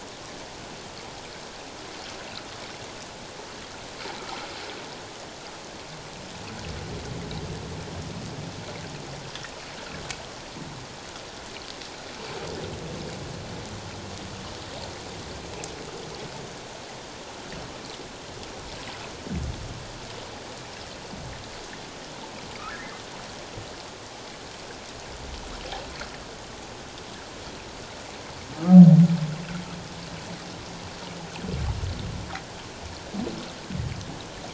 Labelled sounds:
22.6	23.0	humpback whale, 1.1 to 2.1 kHz

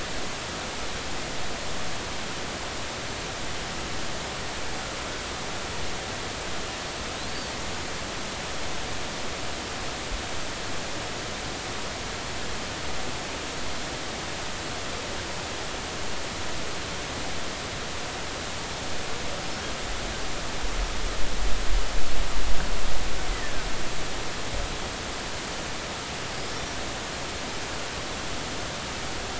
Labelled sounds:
7.3	7.5	killer whale, Bigg's (transient), 4.4 to 4.7 kHz
23.3	23.5	killer whale, Bigg's (transient), 1.7 to 2.1 kHz

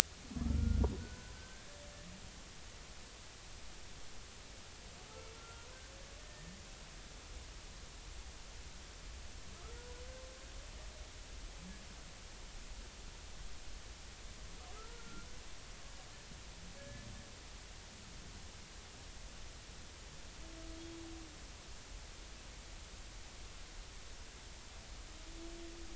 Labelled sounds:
0.5	1.8	humpback whale, 1.3 to 1.8 kHz
5.4	5.8	humpback whale, 0.90 to 1.4 kHz
6.2	6.5	humpback whale, 1.8 to 1.9 kHz
9.7	10.0	humpback whale, 0.86 to 1.0 kHz
14.7	15.3	humpback whale, 1.2 to 1.5 kHz
16.8	17.1	humpback whale, 1.6 to 1.8 kHz

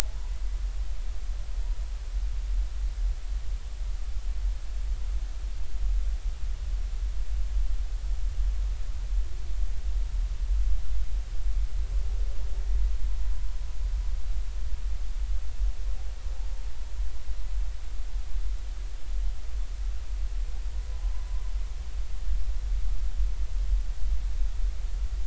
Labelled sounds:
21.2	21.5	humpback whale, 0.96 to 1.1 kHz

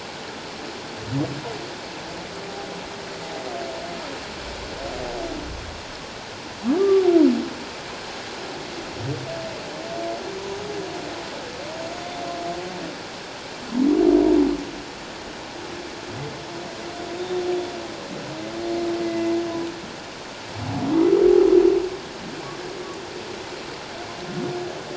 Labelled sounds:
6.8	7.1	humpback whale, 1.1 to 1.2 kHz
19.0	19.3	humpback whale, 2.0 to 2.1 kHz

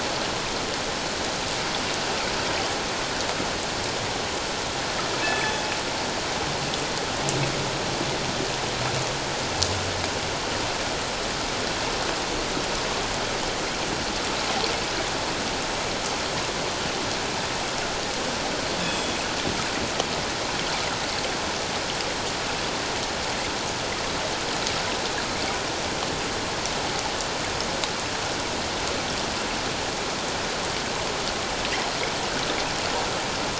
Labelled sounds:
5.2	5.6	killer whale, northern resident, G clan, 1.7 to 3.5 kHz
18.8	19.2	killer whale, northern resident, G clan, 2.5 to 3.5 kHz

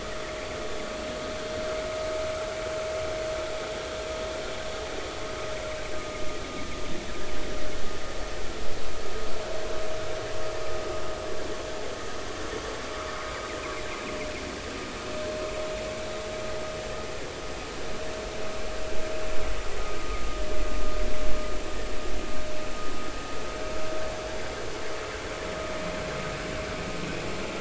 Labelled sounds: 20.0	20.2	vessel noise, 1.2 to 1.3 kHz

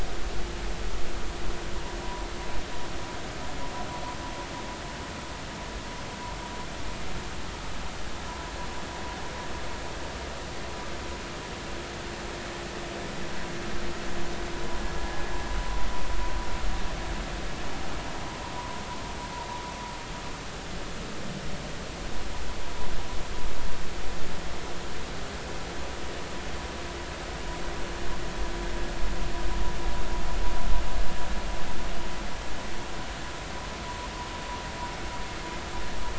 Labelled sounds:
2.0	2.3	vessel noise, 0.93 to 1.0 kHz

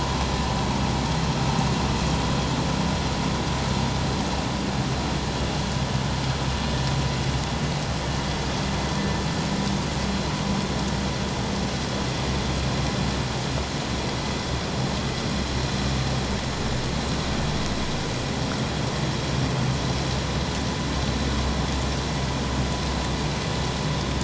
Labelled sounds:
9.0	9.2	vessel noise, 1.7 to 1.8 kHz

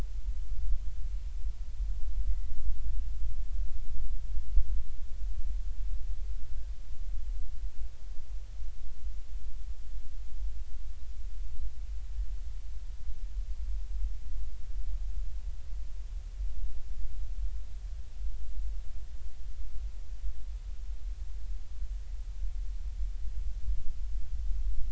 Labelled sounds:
2.3	2.6	humpback whale, 1.9 to 2.1 kHz

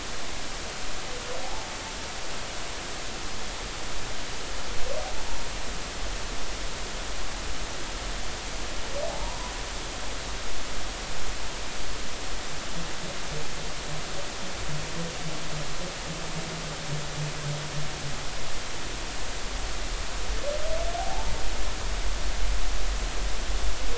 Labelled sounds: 1.4	1.7	humpback whale, 0.80 to 0.93 kHz
9.1	9.4	humpback whale, 0.80 to 1.0 kHz
21.0	21.3	humpback whale, 0.80 to 0.96 kHz

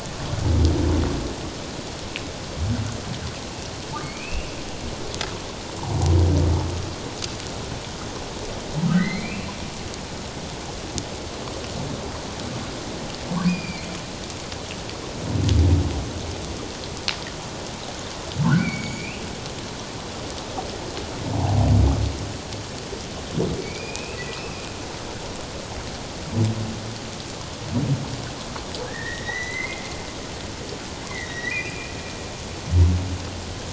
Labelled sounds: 4.0	4.5	humpback whale, 2.1 to 2.8 kHz
8.9	9.5	humpback whale, 1.8 to 4.4 kHz
13.5	13.9	humpback whale, 2.0 to 5.0 kHz
18.4	19.2	humpback whale, 1.3 to 6.9 kHz
23.6	24.6	humpback whale, 2.2 to 2.7 kHz
28.8	29.8	humpback whale, 1.5 to 4.1 kHz
31.1	32.0	humpback whale, 1.8 to 4.0 kHz

